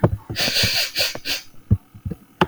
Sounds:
Sniff